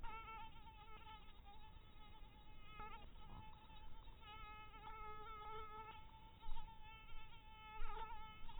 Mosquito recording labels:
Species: mosquito; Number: one; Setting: cup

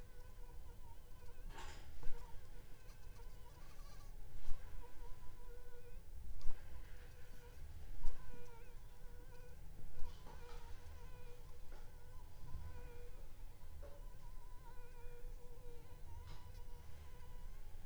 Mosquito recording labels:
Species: Anopheles funestus s.s.; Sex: female; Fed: unfed; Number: one; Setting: cup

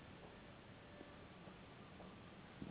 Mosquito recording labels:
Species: Anopheles gambiae s.s.; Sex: female; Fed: unfed; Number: one; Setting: insect culture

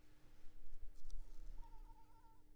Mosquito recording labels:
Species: Anopheles arabiensis; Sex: female; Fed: unfed; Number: one; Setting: cup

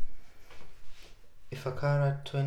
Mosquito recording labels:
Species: Culex pipiens complex; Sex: female; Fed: unfed; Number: one; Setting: cup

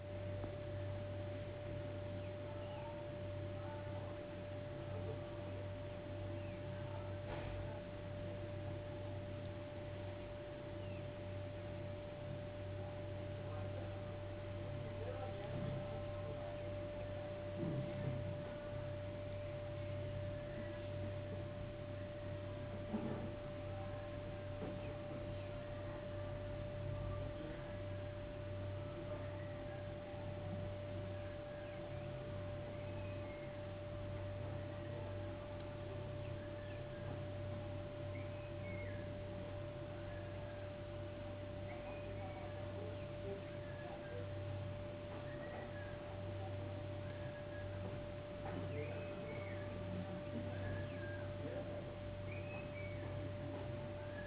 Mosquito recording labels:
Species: no mosquito; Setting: insect culture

